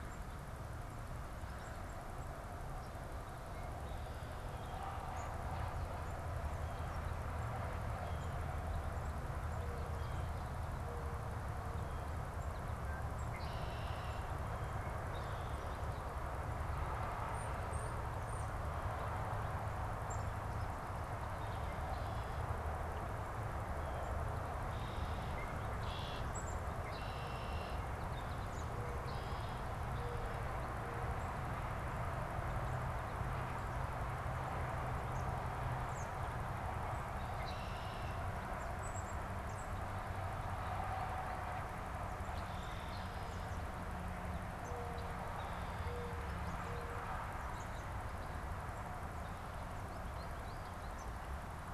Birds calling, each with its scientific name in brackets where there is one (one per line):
Black-capped Chickadee (Poecile atricapillus)
Red-winged Blackbird (Agelaius phoeniceus)
American Robin (Turdus migratorius)
Mourning Dove (Zenaida macroura)
unidentified bird
American Goldfinch (Spinus tristis)
Blue Jay (Cyanocitta cristata)